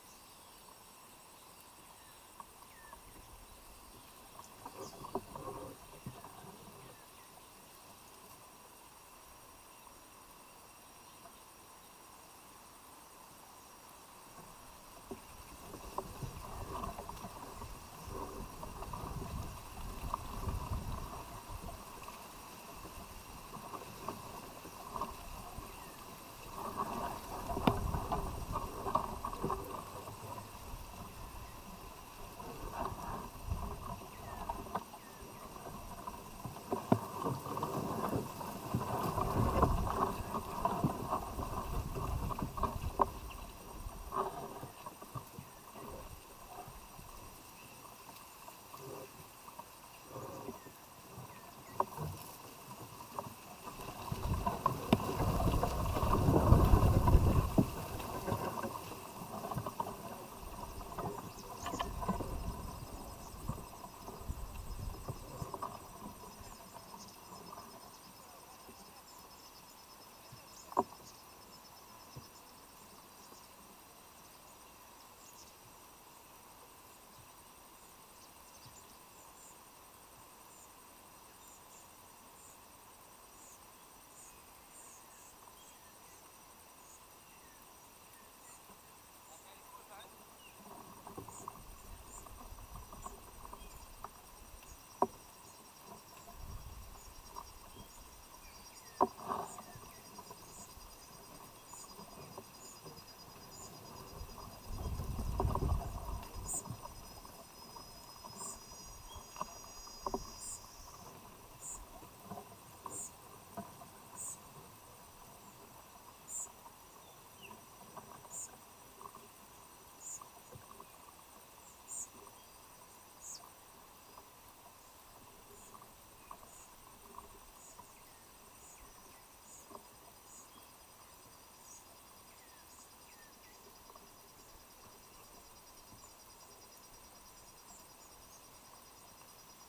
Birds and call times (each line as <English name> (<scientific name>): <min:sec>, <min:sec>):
African Emerald Cuckoo (Chrysococcyx cupreus): 1:39.6, 2:13.1
White-eyed Slaty-Flycatcher (Melaenornis fischeri): 1:46.4, 1:59.9